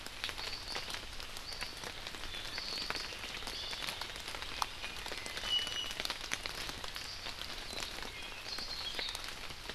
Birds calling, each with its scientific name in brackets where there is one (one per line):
Iiwi (Drepanis coccinea)